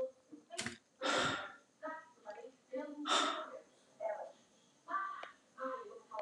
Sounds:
Sigh